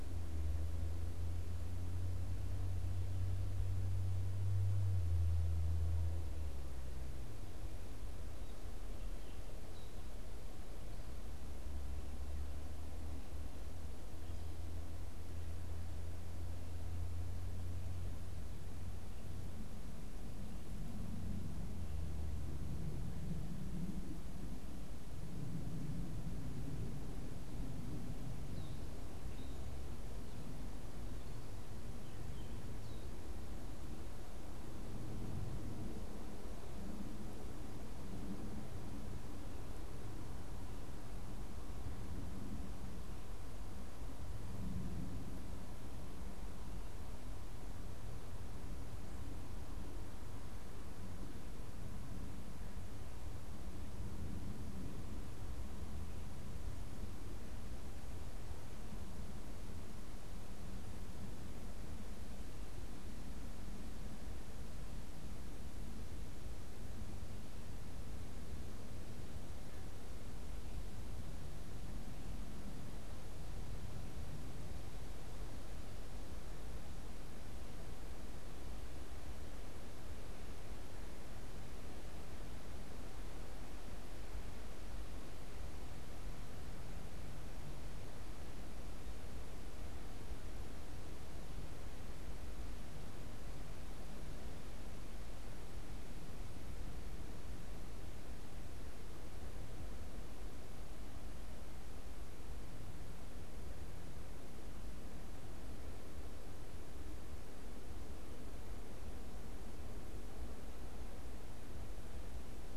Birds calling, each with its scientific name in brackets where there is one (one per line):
Gray Catbird (Dumetella carolinensis)